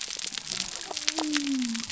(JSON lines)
{"label": "biophony", "recorder": "SoundTrap 300"}